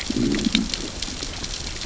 {"label": "biophony, growl", "recorder": "SoundTrap 600 or HydroMoth"}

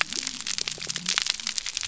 {"label": "biophony", "recorder": "SoundTrap 300"}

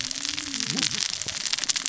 {"label": "biophony, cascading saw", "recorder": "SoundTrap 600 or HydroMoth"}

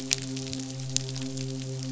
{"label": "biophony, midshipman", "recorder": "SoundTrap 500"}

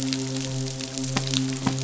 {"label": "biophony, midshipman", "recorder": "SoundTrap 500"}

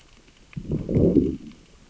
{"label": "biophony, growl", "recorder": "SoundTrap 600 or HydroMoth"}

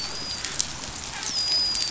{"label": "biophony, dolphin", "recorder": "SoundTrap 500"}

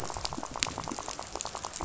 {"label": "biophony, rattle", "recorder": "SoundTrap 500"}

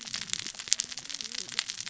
{"label": "biophony, cascading saw", "recorder": "SoundTrap 600 or HydroMoth"}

